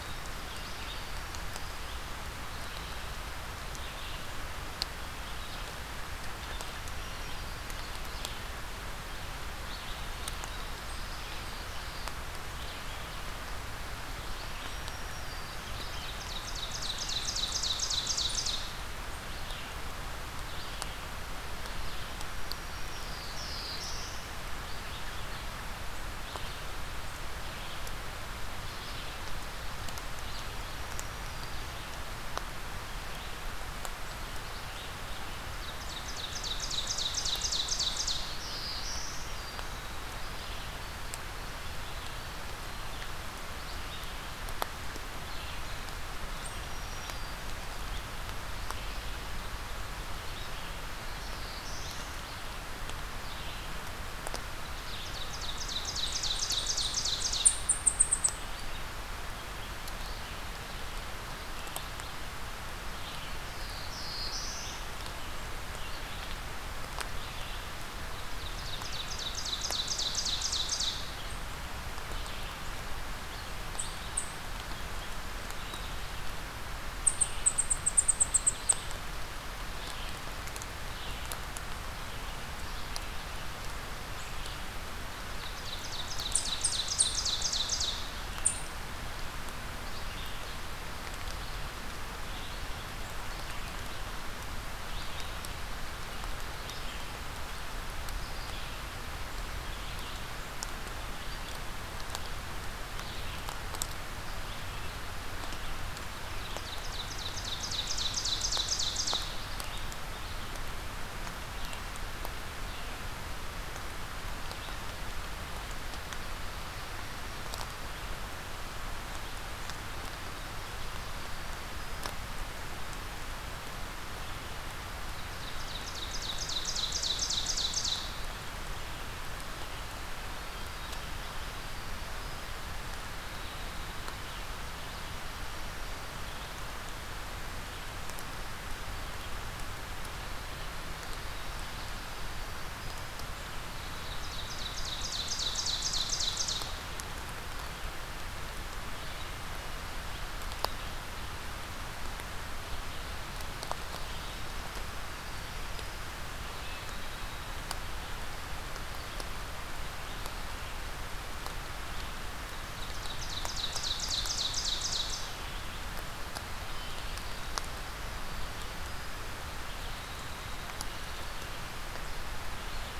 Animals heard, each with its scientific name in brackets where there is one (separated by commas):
unidentified call, Red-eyed Vireo (Vireo olivaceus), Black-throated Blue Warbler (Setophaga caerulescens), Winter Wren (Troglodytes hiemalis), American Robin (Turdus migratorius), Black-throated Green Warbler (Setophaga virens), Ovenbird (Seiurus aurocapilla)